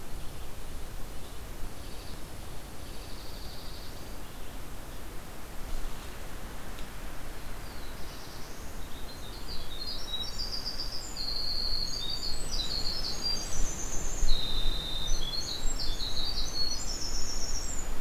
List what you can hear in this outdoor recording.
Dark-eyed Junco, Black-throated Blue Warbler, Winter Wren